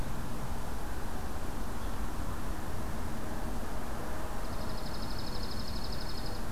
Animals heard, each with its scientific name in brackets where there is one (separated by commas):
Dark-eyed Junco (Junco hyemalis)